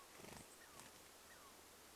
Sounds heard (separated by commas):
Douglas squirrel chirp, bird wingbeats, unidentified bird chip note